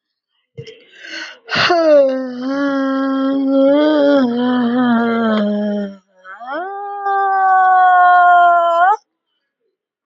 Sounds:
Sigh